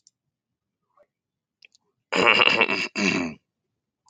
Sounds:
Cough